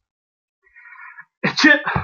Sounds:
Sneeze